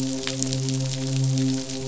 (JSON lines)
{"label": "biophony, midshipman", "recorder": "SoundTrap 500"}